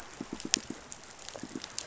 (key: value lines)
label: biophony, pulse
recorder: SoundTrap 500